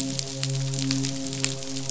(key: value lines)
label: biophony, midshipman
recorder: SoundTrap 500